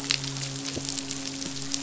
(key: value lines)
label: biophony, midshipman
recorder: SoundTrap 500